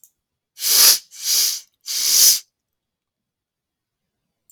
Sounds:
Sniff